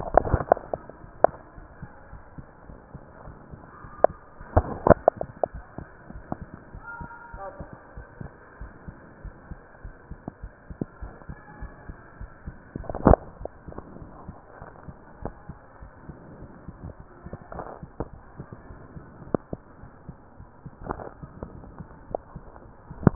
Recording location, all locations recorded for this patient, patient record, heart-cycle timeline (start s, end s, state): aortic valve (AV)
aortic valve (AV)+pulmonary valve (PV)+tricuspid valve (TV)+mitral valve (MV)
#Age: nan
#Sex: Female
#Height: nan
#Weight: nan
#Pregnancy status: True
#Murmur: Absent
#Murmur locations: nan
#Most audible location: nan
#Systolic murmur timing: nan
#Systolic murmur shape: nan
#Systolic murmur grading: nan
#Systolic murmur pitch: nan
#Systolic murmur quality: nan
#Diastolic murmur timing: nan
#Diastolic murmur shape: nan
#Diastolic murmur grading: nan
#Diastolic murmur pitch: nan
#Diastolic murmur quality: nan
#Outcome: Normal
#Campaign: 2015 screening campaign
0.00	1.63	unannotated
1.63	1.68	S1
1.68	1.80	systole
1.80	1.88	S2
1.88	2.10	diastole
2.10	2.19	S1
2.19	2.34	systole
2.34	2.44	S2
2.44	2.68	diastole
2.68	2.78	S1
2.78	2.92	systole
2.92	3.00	S2
3.00	3.23	diastole
3.23	3.38	S1
3.38	3.48	systole
3.48	3.62	S2
3.62	3.81	diastole
3.81	3.92	S1
3.92	4.02	systole
4.02	4.16	S2
4.16	4.38	diastole
4.38	4.46	S1
4.46	4.58	systole
4.58	4.74	S2
4.74	4.94	diastole
4.94	5.06	S1
5.06	5.22	systole
5.22	5.34	S2
5.34	5.52	diastole
5.52	5.64	S1
5.64	5.76	systole
5.76	5.86	S2
5.86	6.08	diastole
6.08	6.24	S1
6.24	6.40	systole
6.40	6.50	S2
6.50	6.72	diastole
6.72	6.82	S1
6.82	7.00	systole
7.00	7.10	S2
7.10	7.31	diastole
7.31	7.44	S1
7.44	7.58	systole
7.58	7.70	S2
7.70	7.94	diastole
7.94	8.06	S1
8.06	8.18	systole
8.18	8.34	S2
8.34	8.58	diastole
8.58	8.74	S1
8.74	8.85	systole
8.85	8.98	S2
8.98	9.22	diastole
9.22	9.36	S1
9.36	9.48	systole
9.48	9.60	S2
9.60	9.82	diastole
9.82	9.94	S1
9.94	10.07	systole
10.07	10.20	S2
10.20	10.40	diastole
10.40	10.52	S1
10.52	10.66	systole
10.66	10.80	S2
10.80	10.99	diastole
10.99	11.16	S1
11.16	11.26	systole
11.26	11.38	S2
11.38	11.60	diastole
11.60	11.74	S1
11.74	11.87	systole
11.87	11.98	S2
11.98	12.18	diastole
12.18	12.30	S1
12.30	12.46	systole
12.46	12.56	S2
12.56	12.75	diastole
12.75	23.15	unannotated